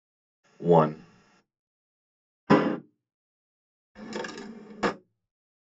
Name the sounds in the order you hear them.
speech, slam, wooden drawer opening